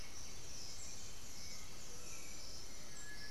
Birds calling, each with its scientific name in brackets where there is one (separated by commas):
Great Antshrike (Taraba major), Black-billed Thrush (Turdus ignobilis), Cinereous Tinamou (Crypturellus cinereus), White-winged Becard (Pachyramphus polychopterus), Undulated Tinamou (Crypturellus undulatus)